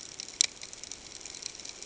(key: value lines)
label: ambient
recorder: HydroMoth